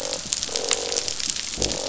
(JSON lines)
{"label": "biophony, croak", "recorder": "SoundTrap 500"}